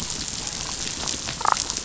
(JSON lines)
{"label": "biophony, damselfish", "recorder": "SoundTrap 500"}